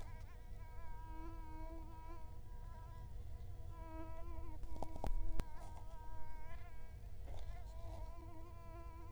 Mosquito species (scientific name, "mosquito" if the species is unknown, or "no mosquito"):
Culex quinquefasciatus